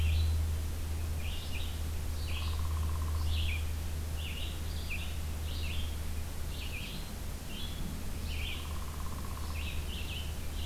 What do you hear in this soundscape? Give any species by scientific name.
Vireo olivaceus, Dryobates pubescens